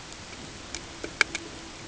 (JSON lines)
{"label": "ambient", "recorder": "HydroMoth"}